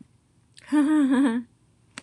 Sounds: Laughter